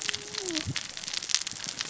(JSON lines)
{"label": "biophony, cascading saw", "recorder": "SoundTrap 600 or HydroMoth"}